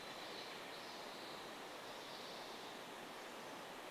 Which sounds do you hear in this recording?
Steller's Jay call, Pacific Wren song, Chestnut-backed Chickadee call